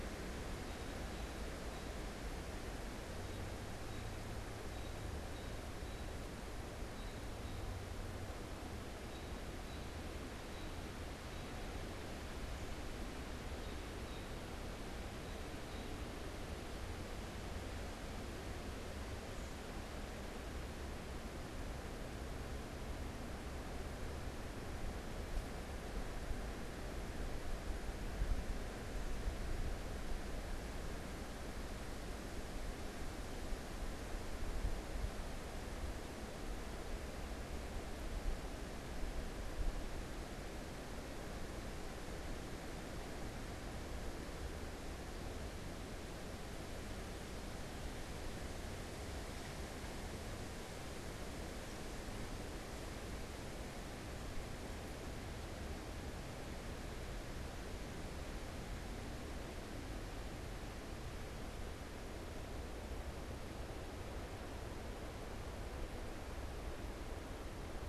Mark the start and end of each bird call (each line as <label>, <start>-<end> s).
American Robin (Turdus migratorius), 0.0-2.1 s
American Robin (Turdus migratorius), 3.2-16.3 s